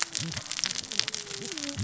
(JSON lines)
{"label": "biophony, cascading saw", "recorder": "SoundTrap 600 or HydroMoth"}